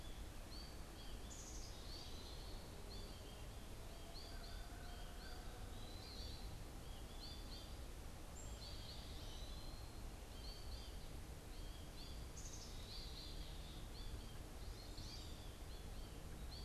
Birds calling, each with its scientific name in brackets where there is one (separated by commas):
Black-capped Chickadee (Poecile atricapillus), American Crow (Corvus brachyrhynchos), American Goldfinch (Spinus tristis), Pileated Woodpecker (Dryocopus pileatus)